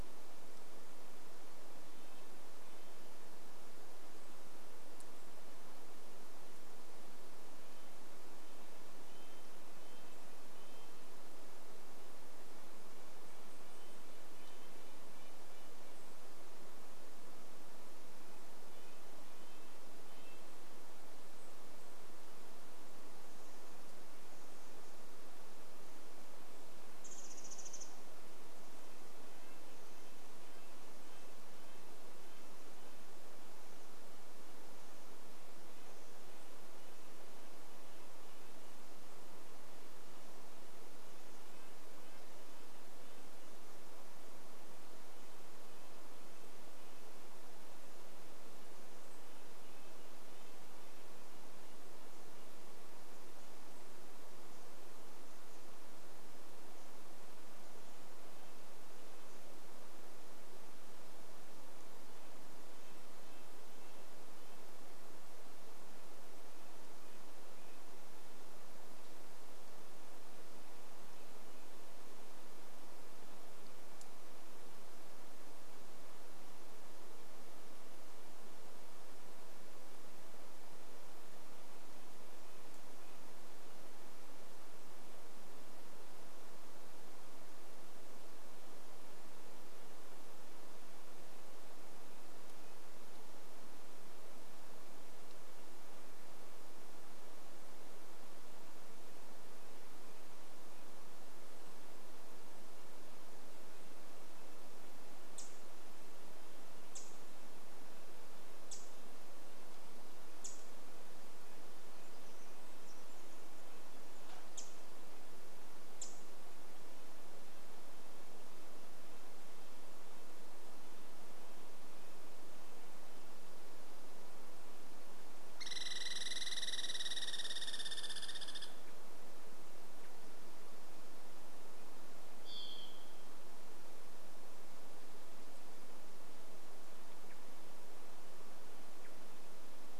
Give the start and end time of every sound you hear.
2s-4s: Red-breasted Nuthatch song
6s-16s: Red-breasted Nuthatch song
18s-22s: Red-breasted Nuthatch song
26s-28s: Pacific Wren call
26s-54s: Red-breasted Nuthatch song
58s-60s: Red-breasted Nuthatch song
62s-68s: Red-breasted Nuthatch song
70s-72s: Red-breasted Nuthatch song
82s-84s: Red-breasted Nuthatch song
92s-94s: Red-breasted Nuthatch song
98s-124s: Red-breasted Nuthatch song
104s-112s: Pacific Wren call
112s-116s: Pacific Wren song
114s-118s: Pacific Wren call
124s-130s: Douglas squirrel rattle
132s-134s: Varied Thrush song
136s-140s: Varied Thrush call

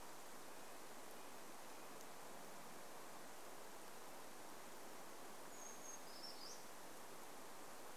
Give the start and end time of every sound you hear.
0s-2s: Red-breasted Nuthatch song
4s-8s: Brown Creeper song

